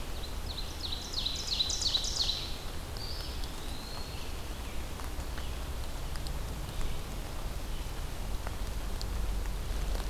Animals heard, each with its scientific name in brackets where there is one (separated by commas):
Ovenbird (Seiurus aurocapilla), Red-eyed Vireo (Vireo olivaceus), Eastern Wood-Pewee (Contopus virens)